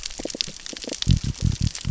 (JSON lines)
{"label": "biophony", "recorder": "SoundTrap 600 or HydroMoth"}